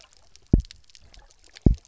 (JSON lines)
{"label": "biophony, double pulse", "recorder": "SoundTrap 300"}